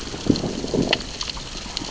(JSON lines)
{"label": "biophony, growl", "recorder": "SoundTrap 600 or HydroMoth"}